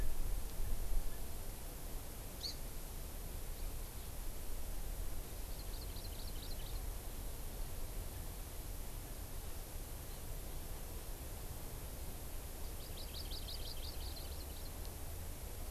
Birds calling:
Hawaii Amakihi (Chlorodrepanis virens)

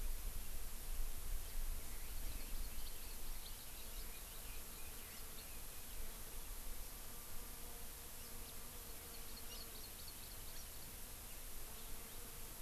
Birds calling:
Hawaii Amakihi (Chlorodrepanis virens), Red-billed Leiothrix (Leiothrix lutea)

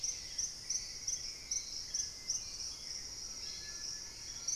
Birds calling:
White-throated Toucan (Ramphastos tucanus), Hauxwell's Thrush (Turdus hauxwelli), Dusky-capped Greenlet (Pachysylvia hypoxantha)

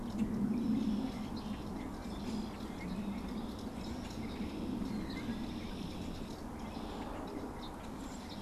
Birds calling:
Red-winged Blackbird (Agelaius phoeniceus)

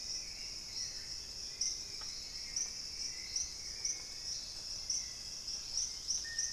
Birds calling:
Dusky-throated Antshrike (Thamnomanes ardesiacus), Hauxwell's Thrush (Turdus hauxwelli), Chestnut-winged Foliage-gleaner (Dendroma erythroptera), Dusky-capped Greenlet (Pachysylvia hypoxantha)

